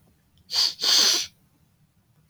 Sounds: Sniff